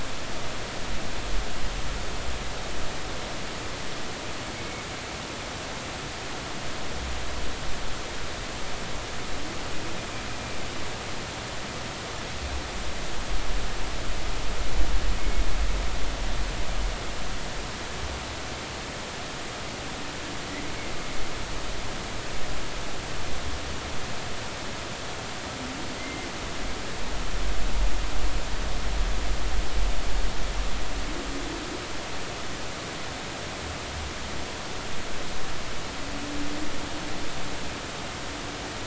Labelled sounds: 4.5	4.8	humpback whale, 2.1 to 2.3 kHz
26.0	26.3	humpback whale, 2.0 to 2.1 kHz

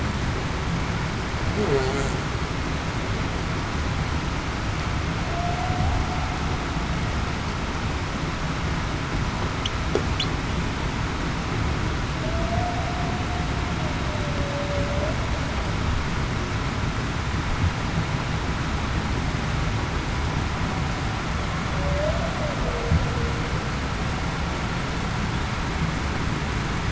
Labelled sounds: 1.7	2.0	humpback whale, 0.38 to 0.45 kHz
5.6	5.9	humpback whale, 0.70 to 0.82 kHz
12.5	12.9	humpback whale, 0.66 to 0.80 kHz
14.2	14.9	humpback whale, 0.54 to 0.61 kHz
21.7	22.2	humpback whale, 0.54 to 0.70 kHz

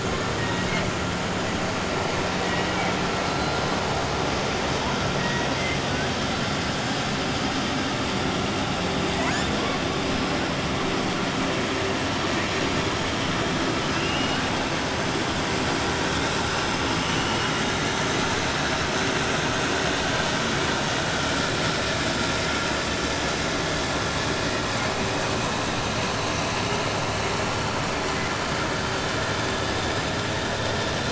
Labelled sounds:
0.3	0.9	killer whale, 0.95 to 4.7 kHz
2.3	3.0	killer whale, 0.98 to 3.8 kHz
13.9	14.4	killer whale, 2.3 to 3.8 kHz
17.0	17.5	killer whale, 2.1 to 3.8 kHz

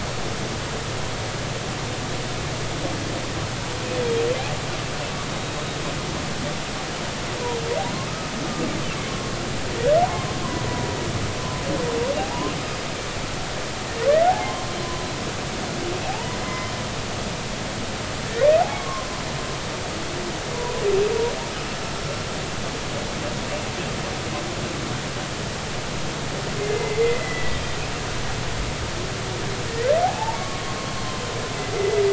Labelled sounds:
9.1	10.3	humpback whale, 0.93 to 1.1 kHz
12.2	12.5	humpback whale, 0.80 to 1.1 kHz
14.3	15.1	humpback whale, 0.80 to 1.1 kHz
16.4	16.7	humpback whale, 0.99 to 5.2 kHz
18.7	19.1	humpback whale, 0.99 to 1.2 kHz
21.7	22.1	humpback whale, 5.2 to 5.4 kHz
26.6	27.6	humpback whale, 1.9 to 2.2 kHz
29.7	31.1	humpback whale, 0.80 to 4.4 kHz
31.8	32.0	humpback whale, 2.0 to 2.1 kHz

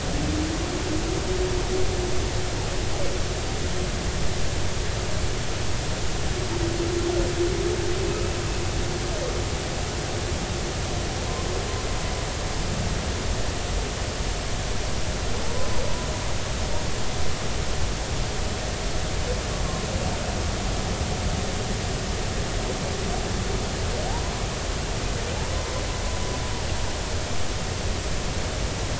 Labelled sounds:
15.4	15.7	humpback whale, 0.83 to 1.1 kHz
24.1	24.3	humpback whale, 0.80 to 1.1 kHz

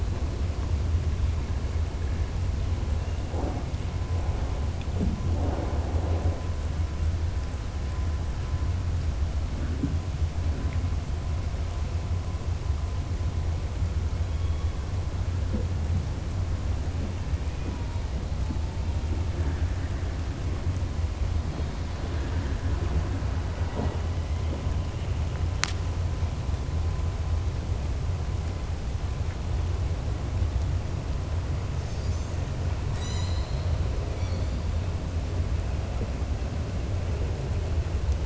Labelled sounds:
22.0	22.5	killer whale, southern resident, 0.94 to 2.4 kHz

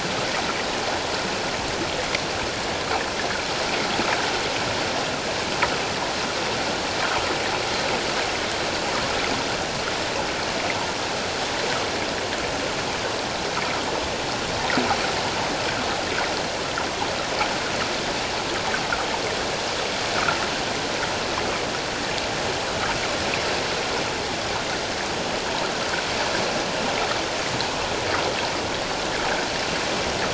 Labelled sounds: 20.1	20.4	water noise, 1.2 to 1.6 kHz

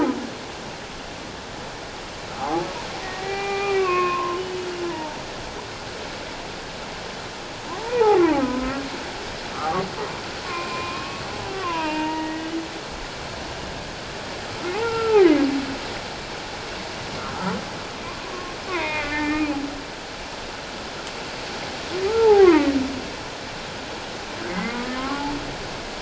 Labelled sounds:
2.3	5.2	humpback whale, 0.78 to 3.0 kHz
7.8	8.8	humpback whale, 0.78 to 1.5 kHz
9.5	11.2	humpback whale, 0.97 to 2.7 kHz
11.5	12.5	humpback whale, 0.88 to 2.9 kHz
14.5	15.5	humpback whale, 0.78 to 2.2 kHz
17.2	17.6	humpback whale, 1.1 to 1.4 kHz
18.2	19.5	humpback whale, 0.88 to 2.6 kHz
22.1	22.7	humpback whale, 0.78 to 2.2 kHz
24.5	25.3	humpback whale, 0.78 to 2.2 kHz

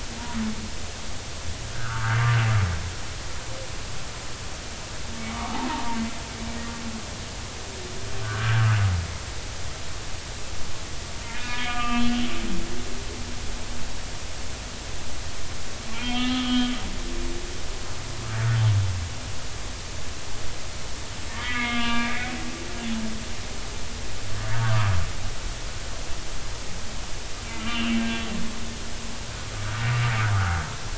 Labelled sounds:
1.7	2.2	humpback whale, 1.1 to 1.7 kHz
5.3	6.0	humpback whale, 0.80 to 1.3 kHz
8.2	8.8	humpback whale, 1.4 to 1.7 kHz
11.3	12.1	humpback whale, 1.1 to 3.3 kHz
15.9	16.7	humpback whale, 0.86 to 3.4 kHz
21.3	22.4	humpback whale, 0.90 to 3.6 kHz
24.6	24.9	humpback whale, 0.93 to 1.3 kHz
27.5	28.0	humpback whale, 2.3 to 3.1 kHz

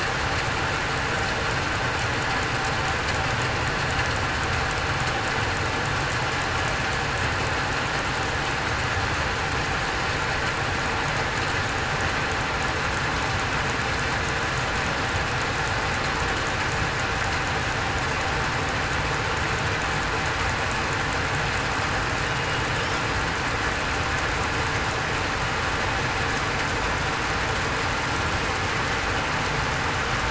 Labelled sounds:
22.2	22.6	killer whale, southern resident, 2.8 to 2.9 kHz

